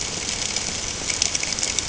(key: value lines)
label: ambient
recorder: HydroMoth